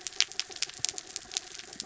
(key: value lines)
label: anthrophony, mechanical
recorder: SoundTrap 300